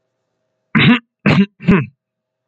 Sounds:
Throat clearing